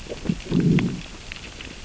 {"label": "biophony, growl", "recorder": "SoundTrap 600 or HydroMoth"}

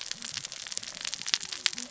{"label": "biophony, cascading saw", "recorder": "SoundTrap 600 or HydroMoth"}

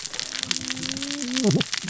{"label": "biophony, cascading saw", "recorder": "SoundTrap 600 or HydroMoth"}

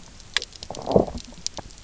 {"label": "biophony, low growl", "recorder": "SoundTrap 300"}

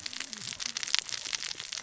{"label": "biophony, cascading saw", "recorder": "SoundTrap 600 or HydroMoth"}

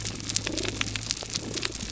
{"label": "biophony, damselfish", "recorder": "SoundTrap 300"}
{"label": "biophony", "recorder": "SoundTrap 300"}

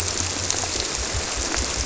{"label": "biophony", "recorder": "SoundTrap 300"}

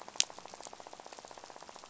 {"label": "biophony, rattle", "recorder": "SoundTrap 500"}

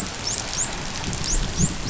{"label": "biophony, dolphin", "recorder": "SoundTrap 500"}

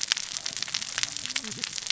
{"label": "biophony, cascading saw", "recorder": "SoundTrap 600 or HydroMoth"}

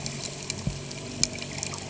{"label": "anthrophony, boat engine", "recorder": "HydroMoth"}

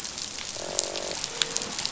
{"label": "biophony, croak", "recorder": "SoundTrap 500"}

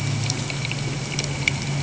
{"label": "anthrophony, boat engine", "recorder": "HydroMoth"}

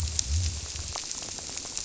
{"label": "biophony", "recorder": "SoundTrap 300"}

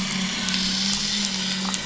{"label": "anthrophony, boat engine", "recorder": "SoundTrap 500"}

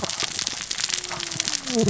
{"label": "biophony, cascading saw", "recorder": "SoundTrap 600 or HydroMoth"}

